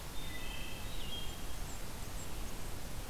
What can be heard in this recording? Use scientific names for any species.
Hylocichla mustelina, Setophaga fusca